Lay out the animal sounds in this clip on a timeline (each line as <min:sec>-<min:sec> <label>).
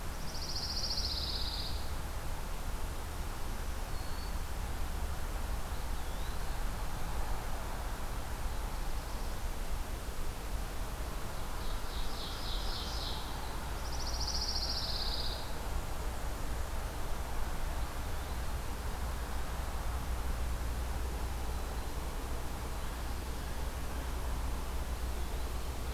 0:00.0-0:02.3 Pine Warbler (Setophaga pinus)
0:03.0-0:04.7 Black-throated Green Warbler (Setophaga virens)
0:05.5-0:06.7 Eastern Wood-Pewee (Contopus virens)
0:11.4-0:13.7 Ovenbird (Seiurus aurocapilla)
0:13.7-0:15.6 Pine Warbler (Setophaga pinus)